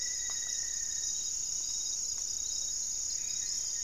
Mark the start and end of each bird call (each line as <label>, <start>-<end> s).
Rufous-fronted Antthrush (Formicarius rufifrons), 0.0-1.2 s
Cobalt-winged Parakeet (Brotogeris cyanoptera), 0.0-2.4 s
Gray-fronted Dove (Leptotila rufaxilla), 0.0-3.8 s
Black-faced Antthrush (Formicarius analis), 3.0-3.8 s
Goeldi's Antbird (Akletos goeldii), 3.1-3.8 s